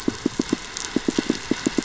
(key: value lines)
label: anthrophony, boat engine
recorder: SoundTrap 500

label: biophony, pulse
recorder: SoundTrap 500